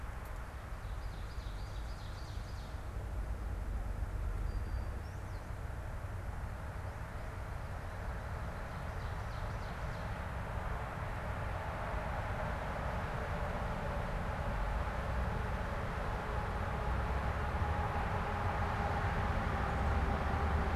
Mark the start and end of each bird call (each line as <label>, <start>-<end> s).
Ovenbird (Seiurus aurocapilla), 0.3-2.9 s
Brown-headed Cowbird (Molothrus ater), 4.2-5.6 s
Ovenbird (Seiurus aurocapilla), 8.3-10.2 s